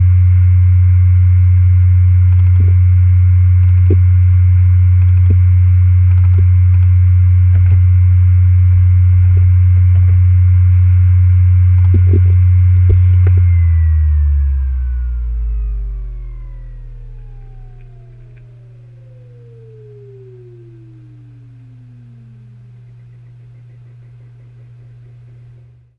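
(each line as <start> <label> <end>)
0.0 A running buzzing sound. 12.9
13.3 A buzzing sound gradually becomes quieter. 25.7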